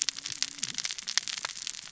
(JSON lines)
{"label": "biophony, cascading saw", "recorder": "SoundTrap 600 or HydroMoth"}